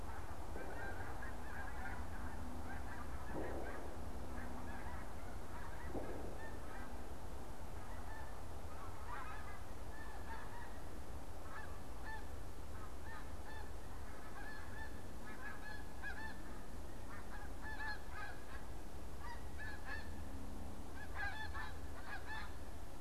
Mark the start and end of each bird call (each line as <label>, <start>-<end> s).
Snow Goose (Anser caerulescens), 0.0-23.0 s